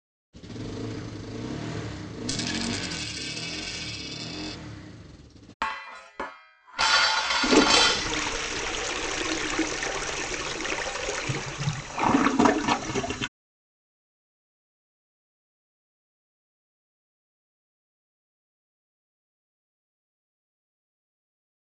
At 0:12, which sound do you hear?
toilet flush